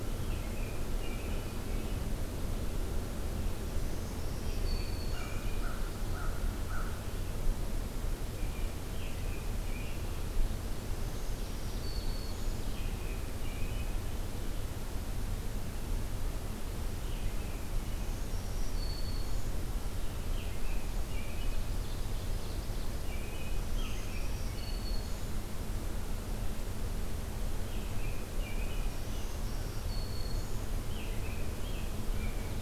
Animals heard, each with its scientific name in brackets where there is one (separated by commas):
American Robin (Turdus migratorius), Ovenbird (Seiurus aurocapilla), American Crow (Corvus brachyrhynchos), Black-throated Green Warbler (Setophaga virens)